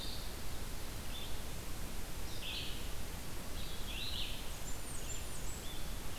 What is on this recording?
Red-eyed Vireo, Blackburnian Warbler